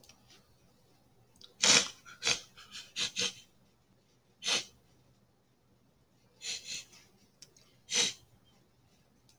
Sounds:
Sniff